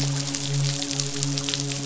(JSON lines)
{"label": "biophony, midshipman", "recorder": "SoundTrap 500"}